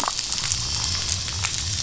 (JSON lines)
{"label": "biophony", "recorder": "SoundTrap 500"}